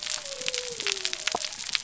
{"label": "biophony", "recorder": "SoundTrap 300"}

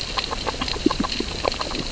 {"label": "biophony, grazing", "recorder": "SoundTrap 600 or HydroMoth"}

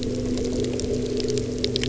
{"label": "anthrophony, boat engine", "recorder": "SoundTrap 300"}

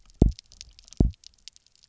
{"label": "biophony, double pulse", "recorder": "SoundTrap 300"}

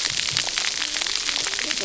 {"label": "biophony, cascading saw", "recorder": "SoundTrap 300"}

